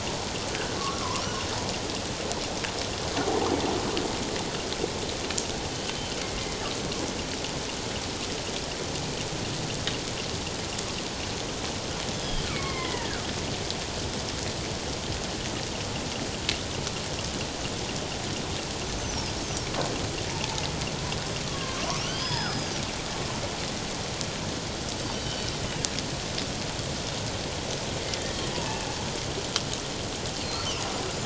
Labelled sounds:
0.8	1.2	killer whale, northern resident, G clan, 0.94 to 1.4 kHz
5.7	6.1	killer whale, northern resident, G clan, 3.0 to 3.1 kHz
12.1	13.2	killer whale, northern resident, G clan, 0.97 to 3.5 kHz
18.9	19.2	killer whale, northern resident, G clan, 5.9 to 6.4 kHz
20.3	20.6	killer whale, northern resident, G clan, 0.84 to 0.97 kHz
21.5	22.8	killer whale, northern resident, G clan, 0.81 to 5.2 kHz
25.0	25.5	killer whale, northern resident, G clan, 2.9 to 5.8 kHz
30.4	30.7	killer whale, northern resident, G clan, 4.0 to 4.5 kHz

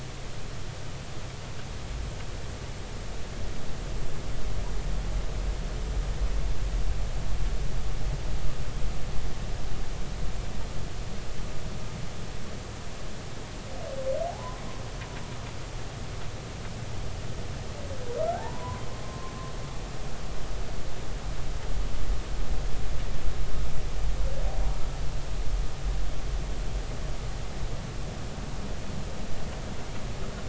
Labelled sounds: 14.3	14.6	humpback whale, 0.80 to 1.1 kHz
18.2	19.3	humpback whale, 0.80 to 1.6 kHz

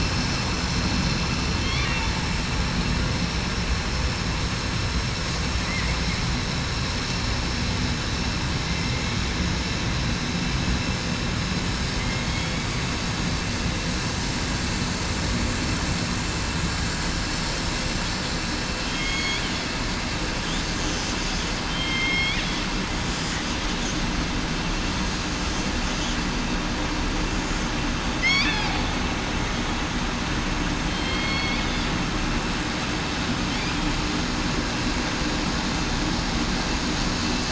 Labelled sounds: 12.2	12.6	killer whale, southern resident, 3.2 to 3.4 kHz
18.9	19.3	killer whale, southern resident, 3.2 to 3.3 kHz
21.7	22.4	killer whale, southern resident, 2.1 to 3.7 kHz
28.2	28.7	killer whale, southern resident, 1.9 to 2.7 kHz
30.8	31.5	killer whale, southern resident, 3.1 to 4.5 kHz

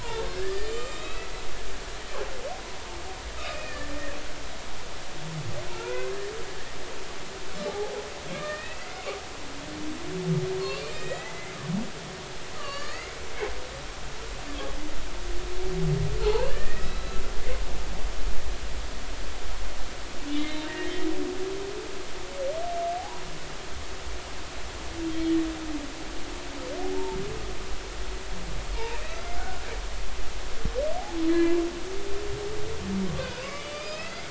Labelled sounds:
0.0	1.7	humpback whale, 0.83 to 7.5 kHz
3.4	4.2	humpback whale, 1.6 to 2.7 kHz
5.7	6.2	humpback whale, 0.86 to 2.1 kHz
7.7	8.0	humpback whale, 0.80 to 0.90 kHz
8.3	9.1	humpback whale, 1.1 to 2.7 kHz
10.8	11.5	humpback whale, 1.8 to 7.6 kHz
12.5	13.1	humpback whale, 1.1 to 4.9 kHz
16.2	17.2	humpback whale, 0.80 to 4.5 kHz
20.4	20.8	humpback whale, 2.0 to 3.8 kHz
23.0	23.3	humpback whale, 0.80 to 1.1 kHz
25.1	25.4	humpback whale, 3.1 to 3.3 kHz
26.8	27.2	humpback whale, 0.80 to 0.96 kHz
28.8	29.3	humpback whale, 0.83 to 1.4 kHz
31.3	31.6	humpback whale, 0.96 to 2.1 kHz
33.1	34.2	humpback whale, 1.0 to 5.2 kHz

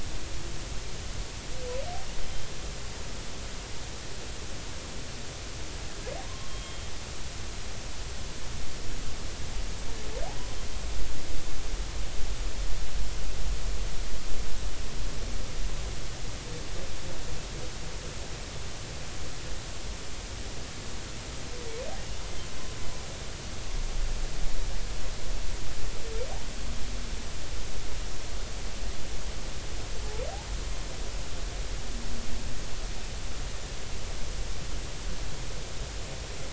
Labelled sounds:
6.2	6.8	humpback whale, 0.99 to 3.3 kHz

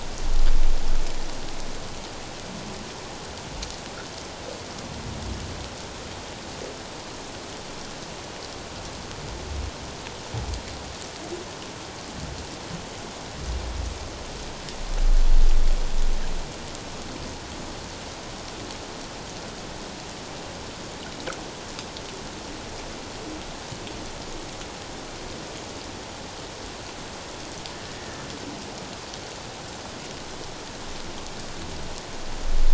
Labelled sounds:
27.9	28.2	humpback whale, 1.7 to 2.0 kHz

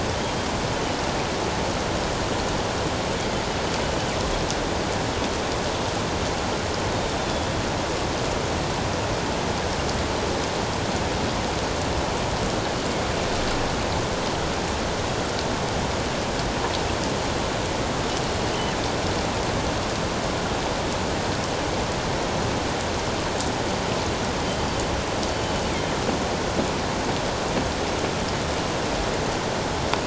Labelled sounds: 7.2	7.5	killer whale, northern resident, G clan, GG subclan, 3.3 to 3.6 kHz

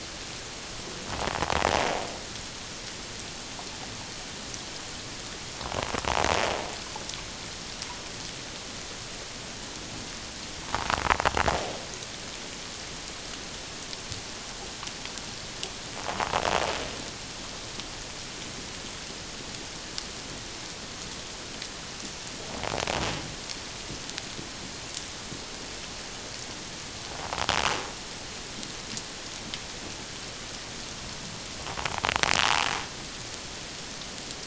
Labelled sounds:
16.0	16.3	invertebrate grinding on or near the hydrophone, 0.78 to 1.2 kHz

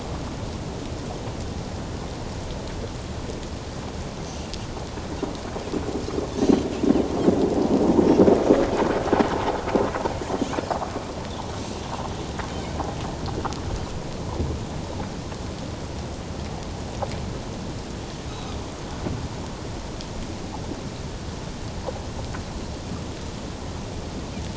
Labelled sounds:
18.3	18.5	Pacific white-sided dolphin, 2.4 to 4.0 kHz

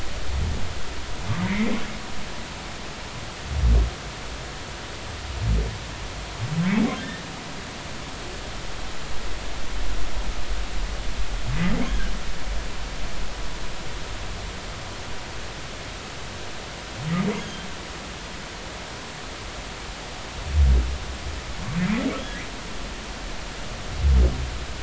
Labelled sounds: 1.4	1.8	humpback whale, 2.0 to 2.4 kHz
6.6	6.9	humpback whale, 1.9 to 2.3 kHz
17.4	17.7	humpback whale, 3.1 to 3.4 kHz

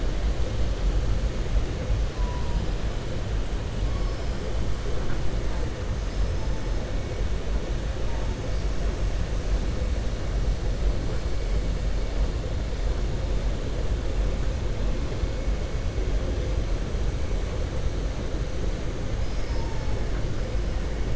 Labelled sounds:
19.2	19.9	killer whale, southern resident, 4.4 to 6.4 kHz

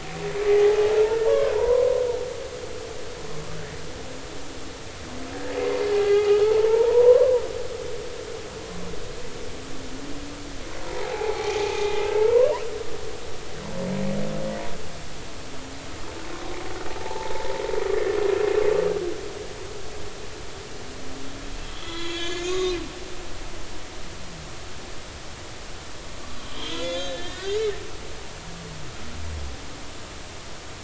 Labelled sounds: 0.5	1.9	humpback whale, 0.80 to 1.2 kHz
5.9	7.4	humpback whale, 0.80 to 2.1 kHz
10.9	12.5	humpback whale, 0.80 to 2.6 kHz
17.0	17.4	humpback whale, 0.80 to 1.0 kHz
21.7	22.7	humpback whale, 0.96 to 4.1 kHz
26.4	27.7	humpback whale, 1.3 to 6.6 kHz

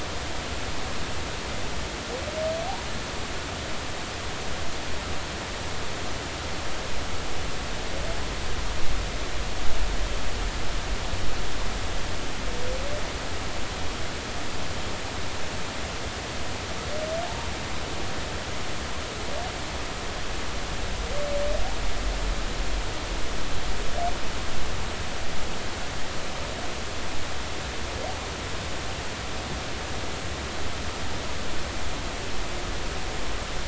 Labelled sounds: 17.3	17.5	humpback whale, 0.83 to 0.99 kHz

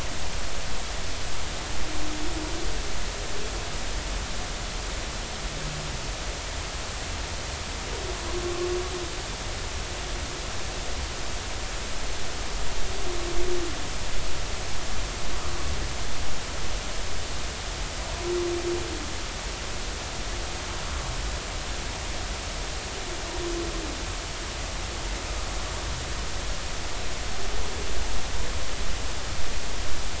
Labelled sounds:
8.4	8.7	humpback whale, 1.1 to 1.2 kHz

